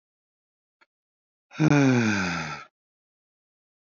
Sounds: Sigh